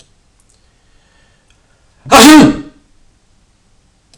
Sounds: Sneeze